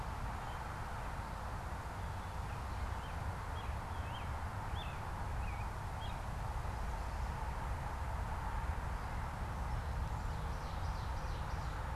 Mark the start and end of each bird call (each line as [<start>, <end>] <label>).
[0.00, 6.35] American Robin (Turdus migratorius)
[9.65, 11.95] Ovenbird (Seiurus aurocapilla)